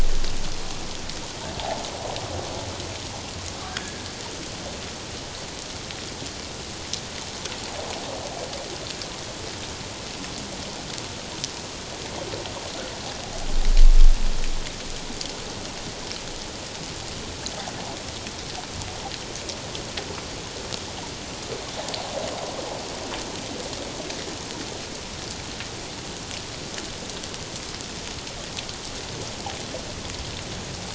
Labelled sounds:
3.7	4.0	humpback whale, 1.4 to 1.8 kHz

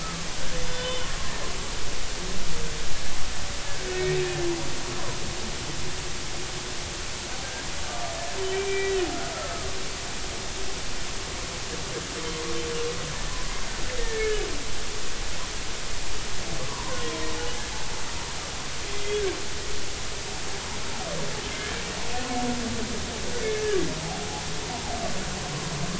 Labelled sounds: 0.0	1.1	humpback whale, 1.1 to 3.6 kHz
3.9	4.2	humpback whale, 1.8 to 2.0 kHz
7.9	9.0	humpback whale, 1.2 to 2.4 kHz
9.3	9.7	humpback whale, 1.2 to 1.4 kHz
14.0	14.5	humpback whale, 1.6 to 1.9 kHz
16.6	17.2	humpback whale, 0.90 to 1.2 kHz

